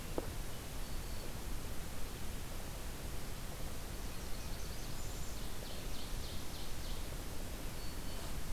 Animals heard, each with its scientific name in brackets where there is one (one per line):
Blackburnian Warbler (Setophaga fusca)
Ovenbird (Seiurus aurocapilla)
Hermit Thrush (Catharus guttatus)